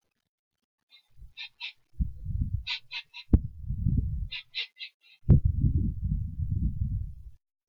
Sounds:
Sniff